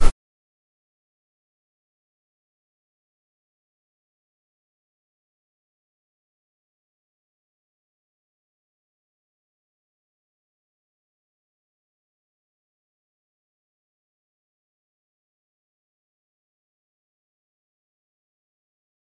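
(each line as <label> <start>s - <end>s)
A soft thud. 0.0s - 0.2s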